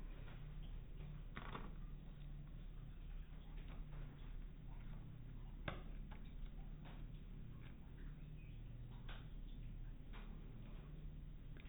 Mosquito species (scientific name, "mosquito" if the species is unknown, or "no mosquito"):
mosquito